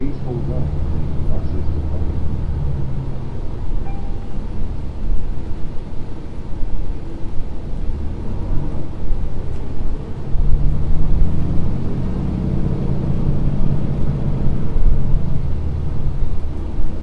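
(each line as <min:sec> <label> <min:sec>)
0:00.0 Radio is playing in the background. 0:02.4
0:00.0 Muffled sound of a bus driving by. 0:17.0
0:03.8 Phone notification sounds in the background. 0:04.5
0:08.0 A bus is speeding up. 0:17.0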